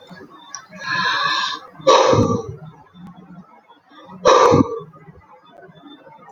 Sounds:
Sigh